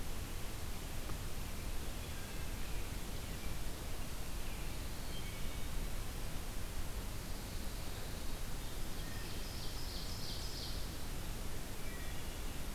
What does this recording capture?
Hermit Thrush, Ovenbird